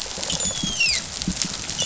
{"label": "biophony, dolphin", "recorder": "SoundTrap 500"}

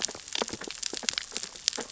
{"label": "biophony, sea urchins (Echinidae)", "recorder": "SoundTrap 600 or HydroMoth"}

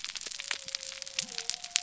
{"label": "biophony", "recorder": "SoundTrap 300"}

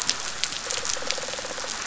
{"label": "biophony, rattle response", "recorder": "SoundTrap 500"}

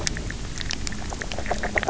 {"label": "biophony, grazing", "recorder": "SoundTrap 300"}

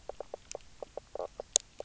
{"label": "biophony, knock croak", "recorder": "SoundTrap 300"}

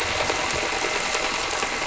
{"label": "anthrophony, boat engine", "recorder": "SoundTrap 300"}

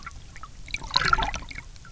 {"label": "anthrophony, boat engine", "recorder": "SoundTrap 300"}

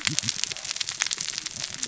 {"label": "biophony, cascading saw", "recorder": "SoundTrap 600 or HydroMoth"}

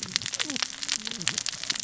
{"label": "biophony, cascading saw", "recorder": "SoundTrap 600 or HydroMoth"}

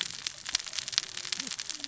{"label": "biophony, cascading saw", "recorder": "SoundTrap 600 or HydroMoth"}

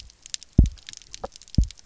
{"label": "biophony, double pulse", "recorder": "SoundTrap 300"}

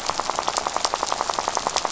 {"label": "biophony, rattle", "recorder": "SoundTrap 500"}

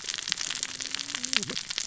{"label": "biophony, cascading saw", "recorder": "SoundTrap 600 or HydroMoth"}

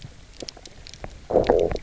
{"label": "biophony, low growl", "recorder": "SoundTrap 300"}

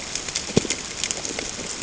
{"label": "ambient", "recorder": "HydroMoth"}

